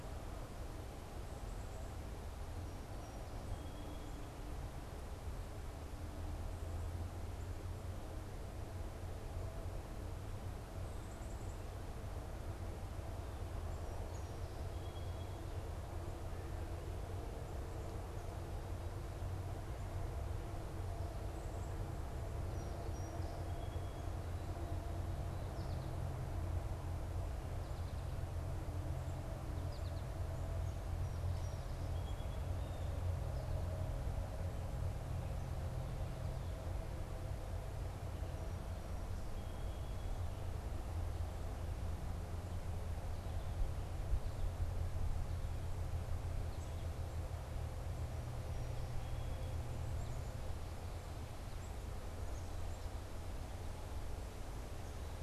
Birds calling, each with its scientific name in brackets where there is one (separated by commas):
American Goldfinch (Spinus tristis), Black-capped Chickadee (Poecile atricapillus), Song Sparrow (Melospiza melodia)